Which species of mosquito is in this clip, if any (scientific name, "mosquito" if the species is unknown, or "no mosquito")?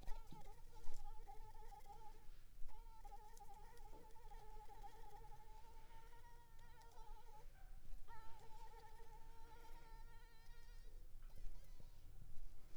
Anopheles arabiensis